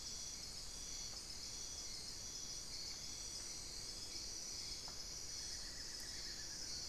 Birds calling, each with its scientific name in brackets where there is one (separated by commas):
Amazonian Barred-Woodcreeper (Dendrocolaptes certhia)